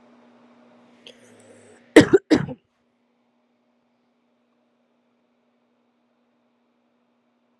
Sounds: Cough